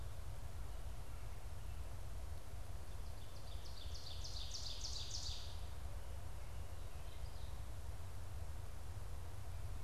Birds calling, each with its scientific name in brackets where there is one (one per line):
Ovenbird (Seiurus aurocapilla)